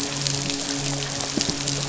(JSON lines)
{"label": "biophony, midshipman", "recorder": "SoundTrap 500"}